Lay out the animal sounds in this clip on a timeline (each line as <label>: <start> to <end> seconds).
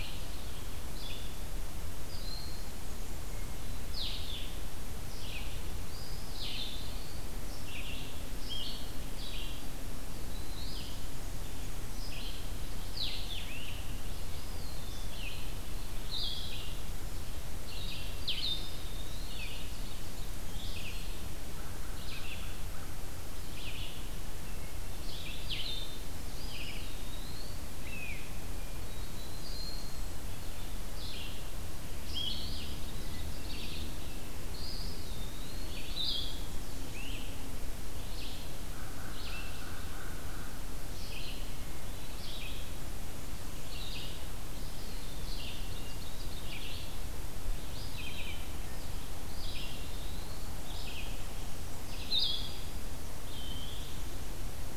Blue-headed Vireo (Vireo solitarius): 0.0 to 18.8 seconds
Red-eyed Vireo (Vireo olivaceus): 0.0 to 21.0 seconds
Broad-winged Hawk (Buteo platypterus): 1.8 to 2.7 seconds
Eastern Wood-Pewee (Contopus virens): 5.7 to 7.5 seconds
Eastern Wood-Pewee (Contopus virens): 14.2 to 15.0 seconds
Eastern Wood-Pewee (Contopus virens): 18.2 to 19.6 seconds
American Crow (Corvus brachyrhynchos): 21.6 to 23.1 seconds
Red-eyed Vireo (Vireo olivaceus): 21.7 to 54.8 seconds
Blue-headed Vireo (Vireo solitarius): 25.3 to 25.9 seconds
Eastern Wood-Pewee (Contopus virens): 26.2 to 27.6 seconds
Great Crested Flycatcher (Myiarchus crinitus): 27.7 to 28.2 seconds
Hermit Thrush (Catharus guttatus): 28.5 to 29.8 seconds
Blue-headed Vireo (Vireo solitarius): 32.0 to 32.8 seconds
Eastern Wood-Pewee (Contopus virens): 34.3 to 35.9 seconds
Blue-headed Vireo (Vireo solitarius): 35.7 to 36.5 seconds
Great Crested Flycatcher (Myiarchus crinitus): 36.8 to 37.3 seconds
American Crow (Corvus brachyrhynchos): 38.6 to 40.6 seconds
Hermit Thrush (Catharus guttatus): 41.5 to 42.4 seconds
Eastern Wood-Pewee (Contopus virens): 44.5 to 45.8 seconds
Ovenbird (Seiurus aurocapilla): 45.1 to 46.7 seconds
Eastern Wood-Pewee (Contopus virens): 49.1 to 50.6 seconds
Blue-headed Vireo (Vireo solitarius): 51.8 to 52.7 seconds
Eastern Wood-Pewee (Contopus virens): 53.1 to 53.9 seconds